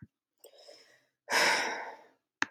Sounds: Sigh